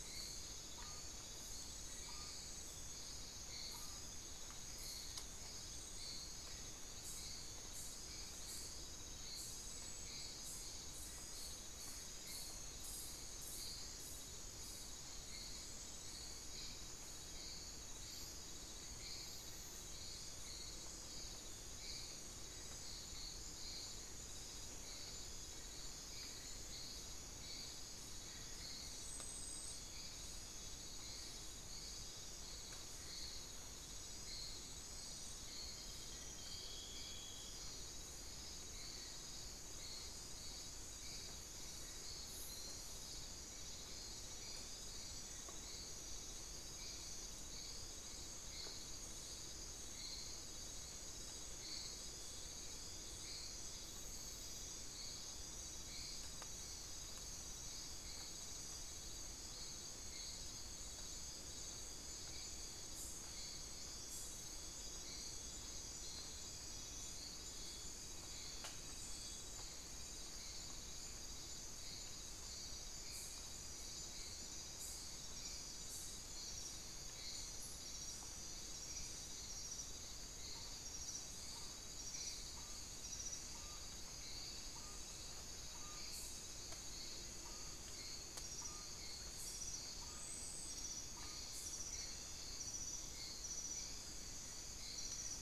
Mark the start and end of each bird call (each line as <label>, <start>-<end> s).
unidentified bird, 0.0-4.6 s
unidentified bird, 80.2-95.4 s